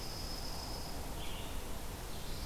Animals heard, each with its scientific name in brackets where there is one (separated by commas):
Dark-eyed Junco (Junco hyemalis), Red-eyed Vireo (Vireo olivaceus)